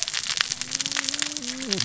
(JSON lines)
{"label": "biophony, cascading saw", "recorder": "SoundTrap 600 or HydroMoth"}